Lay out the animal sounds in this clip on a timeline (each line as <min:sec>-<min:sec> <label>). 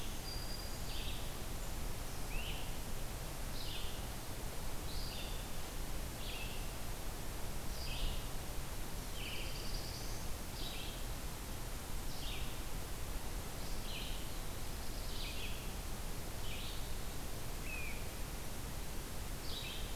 0:00.0-0:01.0 Black-throated Green Warbler (Setophaga virens)
0:00.0-0:20.0 Red-eyed Vireo (Vireo olivaceus)
0:02.1-0:02.6 Great Crested Flycatcher (Myiarchus crinitus)
0:08.8-0:10.3 Black-throated Blue Warbler (Setophaga caerulescens)
0:14.2-0:15.3 Black-throated Blue Warbler (Setophaga caerulescens)
0:17.5-0:18.1 Great Crested Flycatcher (Myiarchus crinitus)